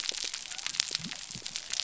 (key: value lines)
label: biophony
recorder: SoundTrap 300